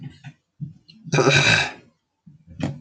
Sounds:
Throat clearing